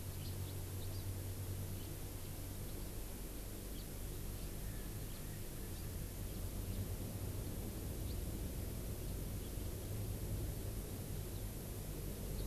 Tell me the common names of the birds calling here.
House Finch, Erckel's Francolin